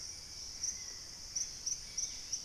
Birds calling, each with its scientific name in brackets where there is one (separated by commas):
Dusky-capped Greenlet (Pachysylvia hypoxantha), Gray Antbird (Cercomacra cinerascens), Hauxwell's Thrush (Turdus hauxwelli), White-throated Toucan (Ramphastos tucanus)